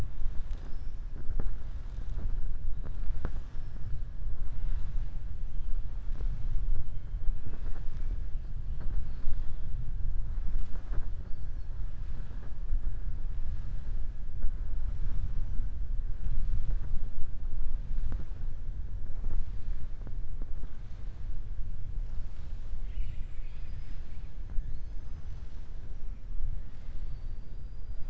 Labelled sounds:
22.7	24.3	killer whale, southern resident, 1.8 to 6.4 kHz

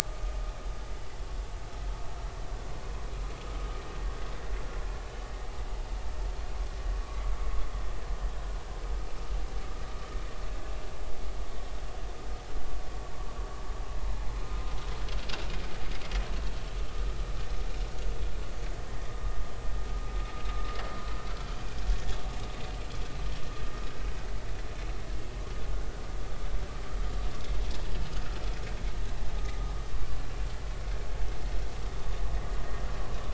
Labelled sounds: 0.0	0.4	vessel noise, 1.1 to 1.3 kHz

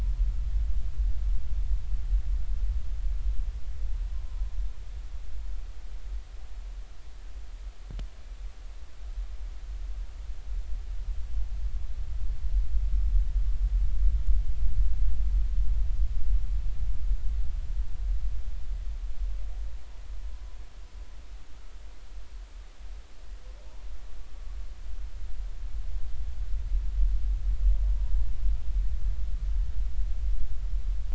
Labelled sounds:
4.1	4.4	humpback whale, 0.93 to 1.1 kHz

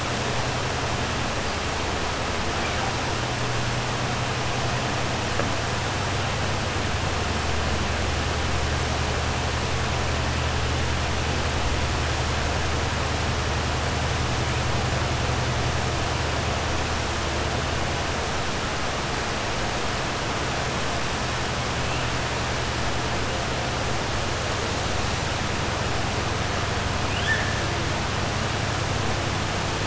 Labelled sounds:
27.0	27.5	killer whale, 1.6 to 3.5 kHz

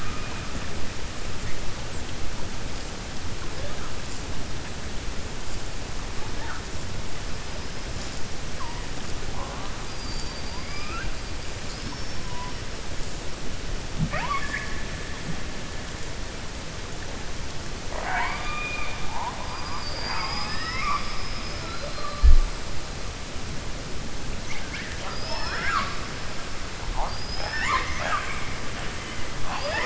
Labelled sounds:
17.8	19.0	killer whale, 0.58 to 4.4 kHz
25.0	26.0	killer whale, 0.58 to 7.0 kHz

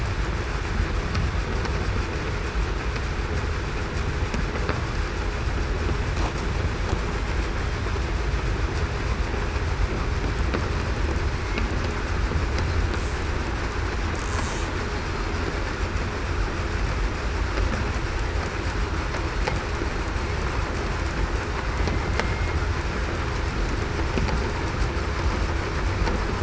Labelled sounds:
22.2	22.6	killer whale, southern resident, 2.1 to 2.2 kHz

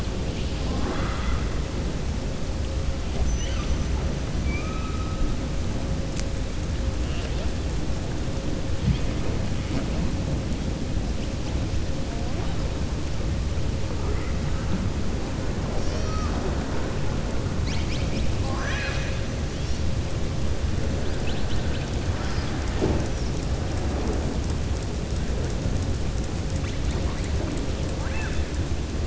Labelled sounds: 0.2	1.4	killer whale, southern resident, 0.54 to 4.6 kHz
3.3	3.7	killer whale, southern resident, 1.2 to 3.7 kHz
18.4	19.2	killer whale, southern resident, 0.80 to 6.0 kHz
27.9	28.5	killer whale, southern resident, 0.82 to 3.6 kHz

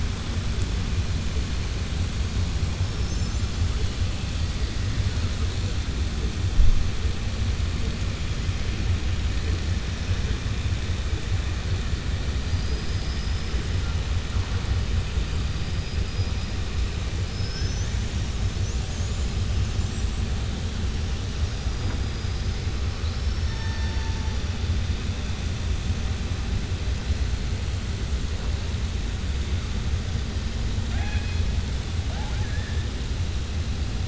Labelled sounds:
22.9	24.1	killer whale, southern resident, 3.5 to 6.3 kHz
30.8	31.4	killer whale, southern resident, 0.69 to 5.1 kHz

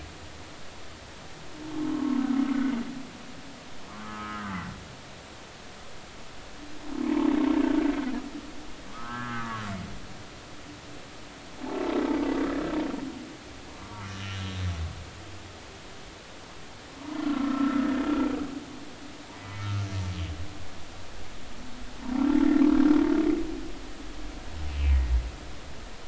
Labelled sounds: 1.9	2.2	humpback whale, 0.99 to 1.2 kHz
3.9	4.6	humpback whale, 1.0 to 1.7 kHz
8.9	9.6	humpback whale, 1.0 to 1.8 kHz
13.7	14.4	humpback whale, 0.96 to 3.1 kHz
17.2	17.9	humpback whale, 1.2 to 1.5 kHz
19.4	19.8	humpback whale, 1.2 to 2.3 kHz

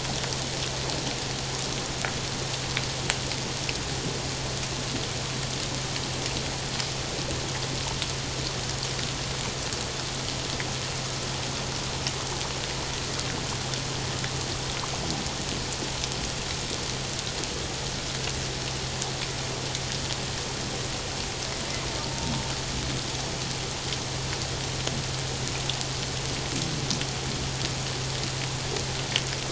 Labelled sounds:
22.0	22.3	killer whale, Bigg's (transient), 0.88 to 0.97 kHz

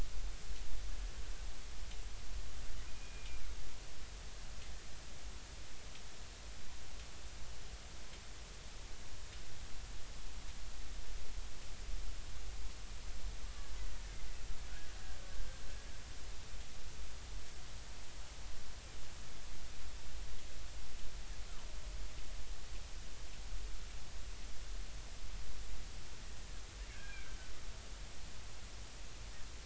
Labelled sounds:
2.9	3.4	killer whale, Bigg's (transient), 2.3 to 2.5 kHz
15.4	15.6	killer whale, Bigg's (transient), 1.5 to 1.6 kHz
26.9	27.4	killer whale, Bigg's (transient), 1.4 to 2.6 kHz

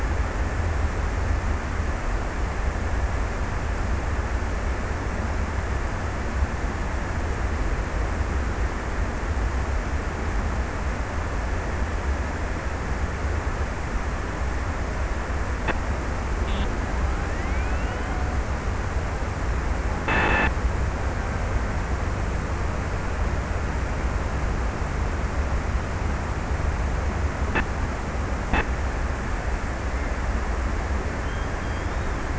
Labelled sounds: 17.1	19.0	killer whale, Bigg's (transient), 0.48 to 1.8 kHz

